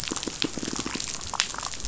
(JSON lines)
{"label": "biophony, damselfish", "recorder": "SoundTrap 500"}